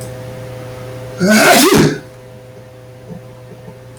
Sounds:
Sneeze